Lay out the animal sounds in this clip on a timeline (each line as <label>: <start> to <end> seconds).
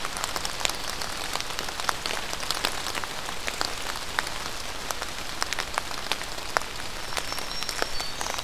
Black-throated Green Warbler (Setophaga virens): 6.8 to 8.4 seconds